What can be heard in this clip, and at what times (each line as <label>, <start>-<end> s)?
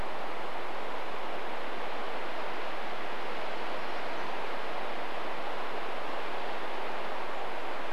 unidentified bird chip note, 4-6 s
Golden-crowned Kinglet song, 6-8 s